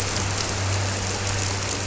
{"label": "anthrophony, boat engine", "recorder": "SoundTrap 300"}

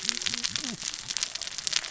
{"label": "biophony, cascading saw", "recorder": "SoundTrap 600 or HydroMoth"}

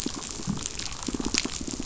{"label": "biophony, pulse", "recorder": "SoundTrap 500"}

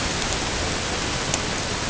{"label": "ambient", "recorder": "HydroMoth"}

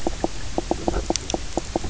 {"label": "biophony, knock croak", "recorder": "SoundTrap 300"}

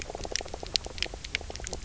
{"label": "biophony, knock croak", "recorder": "SoundTrap 300"}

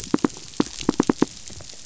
{"label": "biophony, knock", "recorder": "SoundTrap 500"}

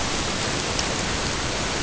{"label": "ambient", "recorder": "HydroMoth"}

